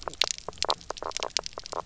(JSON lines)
{"label": "biophony, knock croak", "recorder": "SoundTrap 300"}